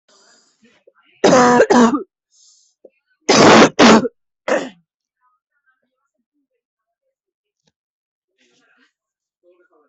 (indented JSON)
{
  "expert_labels": [
    {
      "quality": "poor",
      "cough_type": "unknown",
      "dyspnea": false,
      "wheezing": false,
      "stridor": false,
      "choking": false,
      "congestion": false,
      "nothing": true,
      "diagnosis": "COVID-19",
      "severity": "mild"
    }
  ],
  "age": 33,
  "gender": "female",
  "respiratory_condition": true,
  "fever_muscle_pain": false,
  "status": "symptomatic"
}